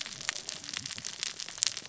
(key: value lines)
label: biophony, cascading saw
recorder: SoundTrap 600 or HydroMoth